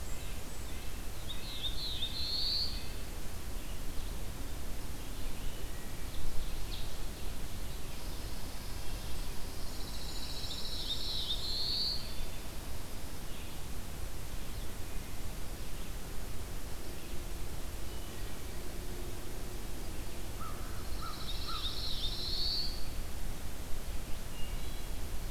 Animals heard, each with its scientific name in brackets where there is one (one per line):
Pine Warbler (Setophaga pinus)
Ovenbird (Seiurus aurocapilla)
Black-throated Blue Warbler (Setophaga caerulescens)
Red Squirrel (Tamiasciurus hudsonicus)
Blackburnian Warbler (Setophaga fusca)
Red-breasted Nuthatch (Sitta canadensis)
Wood Thrush (Hylocichla mustelina)
American Crow (Corvus brachyrhynchos)